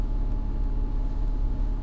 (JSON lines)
{"label": "anthrophony, boat engine", "recorder": "SoundTrap 300"}